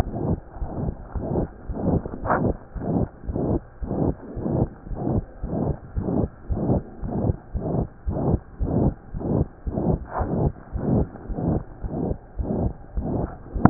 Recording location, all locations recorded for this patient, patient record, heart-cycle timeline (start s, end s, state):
pulmonary valve (PV)
aortic valve (AV)+pulmonary valve (PV)+tricuspid valve (TV)+mitral valve (MV)
#Age: Child
#Sex: Male
#Height: 98.0 cm
#Weight: 13.9 kg
#Pregnancy status: False
#Murmur: Present
#Murmur locations: aortic valve (AV)+mitral valve (MV)+pulmonary valve (PV)+tricuspid valve (TV)
#Most audible location: pulmonary valve (PV)
#Systolic murmur timing: Holosystolic
#Systolic murmur shape: Crescendo
#Systolic murmur grading: III/VI or higher
#Systolic murmur pitch: High
#Systolic murmur quality: Harsh
#Diastolic murmur timing: nan
#Diastolic murmur shape: nan
#Diastolic murmur grading: nan
#Diastolic murmur pitch: nan
#Diastolic murmur quality: nan
#Outcome: Abnormal
#Campaign: 2015 screening campaign
0.00	0.56	unannotated
0.56	0.70	S1
0.70	0.80	systole
0.80	0.92	S2
0.92	1.14	diastole
1.14	1.26	S1
1.26	1.32	systole
1.32	1.46	S2
1.46	1.68	diastole
1.68	1.80	S1
1.80	1.84	systole
1.84	2.00	S2
2.00	2.22	diastole
2.22	2.32	S1
2.32	2.38	systole
2.38	2.50	S2
2.50	2.74	diastole
2.74	2.84	S1
2.84	2.88	systole
2.88	3.02	S2
3.02	3.28	diastole
3.28	3.40	S1
3.40	3.48	systole
3.48	3.62	S2
3.62	3.82	diastole
3.82	3.92	S1
3.92	3.98	systole
3.98	4.14	S2
4.14	4.34	diastole
4.34	4.44	S1
4.44	4.52	systole
4.52	4.68	S2
4.68	4.90	diastole
4.90	5.00	S1
5.00	5.06	systole
5.06	5.21	S2
5.21	5.42	diastole
5.42	5.52	S1
5.52	5.63	systole
5.63	5.74	S2
5.74	5.92	diastole
5.92	6.04	S1
6.04	6.17	systole
6.17	6.28	S2
6.28	6.48	diastole
6.48	6.62	S1
6.62	6.69	systole
6.69	6.84	S2
6.84	7.00	diastole
7.00	7.13	S1
7.13	7.26	systole
7.26	7.36	S2
7.36	7.52	diastole
7.52	7.61	S1
7.61	13.70	unannotated